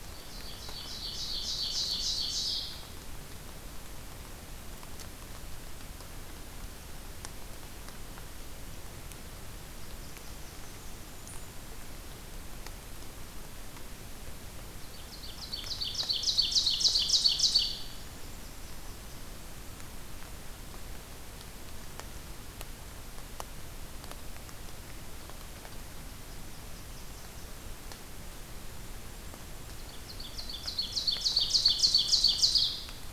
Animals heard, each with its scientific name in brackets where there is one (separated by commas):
Blackburnian Warbler (Setophaga fusca), Golden-crowned Kinglet (Regulus satrapa), Ovenbird (Seiurus aurocapilla)